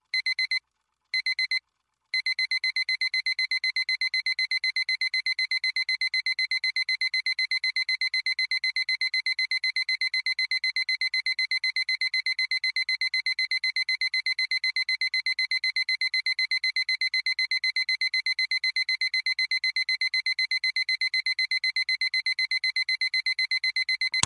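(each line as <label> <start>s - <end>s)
Beeping. 0.1s - 1.6s
A device is beeping repeatedly. 2.1s - 23.6s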